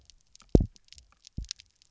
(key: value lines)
label: biophony, double pulse
recorder: SoundTrap 300